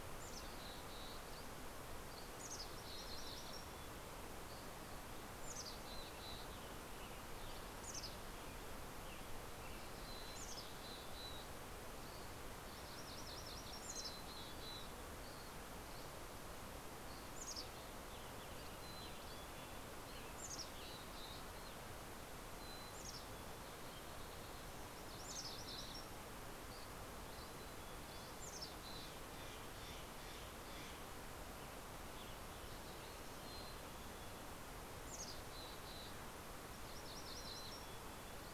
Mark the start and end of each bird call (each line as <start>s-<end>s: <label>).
0.0s-1.2s: Mountain Chickadee (Poecile gambeli)
1.2s-2.2s: Dusky Flycatcher (Empidonax oberholseri)
1.6s-4.4s: MacGillivray's Warbler (Geothlypis tolmiei)
2.2s-4.3s: Mountain Chickadee (Poecile gambeli)
4.1s-5.1s: Dusky Flycatcher (Empidonax oberholseri)
5.3s-6.8s: Mountain Chickadee (Poecile gambeli)
5.7s-10.2s: Western Tanager (Piranga ludoviciana)
7.5s-9.1s: Mountain Chickadee (Poecile gambeli)
10.1s-11.8s: Mountain Chickadee (Poecile gambeli)
11.7s-12.6s: Dusky Flycatcher (Empidonax oberholseri)
12.5s-14.6s: MacGillivray's Warbler (Geothlypis tolmiei)
13.2s-15.5s: Mountain Chickadee (Poecile gambeli)
14.6s-18.4s: Dusky Flycatcher (Empidonax oberholseri)
17.0s-29.5s: Mountain Chickadee (Poecile gambeli)
17.8s-20.9s: Western Tanager (Piranga ludoviciana)
24.7s-26.9s: MacGillivray's Warbler (Geothlypis tolmiei)
26.6s-28.6s: Dusky Flycatcher (Empidonax oberholseri)
29.3s-31.4s: Steller's Jay (Cyanocitta stelleri)
31.8s-34.1s: Western Tanager (Piranga ludoviciana)
33.2s-36.3s: Mountain Chickadee (Poecile gambeli)
37.3s-38.4s: Mountain Chickadee (Poecile gambeli)